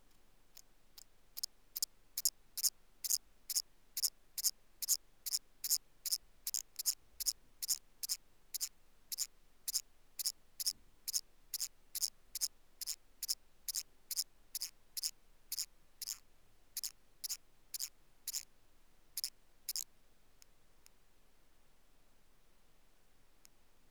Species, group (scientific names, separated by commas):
Thyreonotus corsicus, Orthoptera